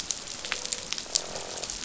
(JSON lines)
{"label": "biophony, croak", "recorder": "SoundTrap 500"}